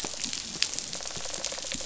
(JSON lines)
{"label": "biophony, rattle response", "recorder": "SoundTrap 500"}